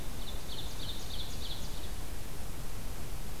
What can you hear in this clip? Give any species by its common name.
Ovenbird